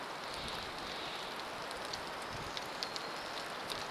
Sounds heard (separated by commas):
warbler song, Steller's Jay call, rain